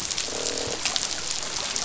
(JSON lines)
{"label": "biophony, croak", "recorder": "SoundTrap 500"}